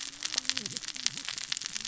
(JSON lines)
{"label": "biophony, cascading saw", "recorder": "SoundTrap 600 or HydroMoth"}